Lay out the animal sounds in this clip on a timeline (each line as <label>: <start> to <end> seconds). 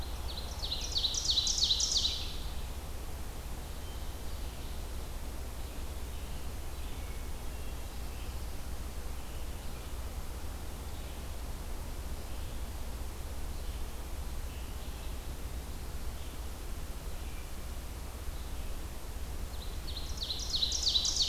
Ovenbird (Seiurus aurocapilla): 0.0 to 2.8 seconds
Red-eyed Vireo (Vireo olivaceus): 0.0 to 21.3 seconds
Hermit Thrush (Catharus guttatus): 6.9 to 8.1 seconds
Ovenbird (Seiurus aurocapilla): 19.3 to 21.3 seconds